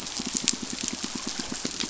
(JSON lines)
{"label": "biophony, pulse", "recorder": "SoundTrap 500"}